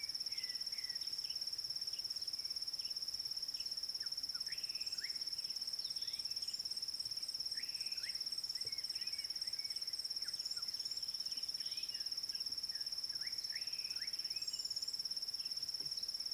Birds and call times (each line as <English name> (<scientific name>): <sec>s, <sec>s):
Slate-colored Boubou (Laniarius funebris): 7.8s, 13.6s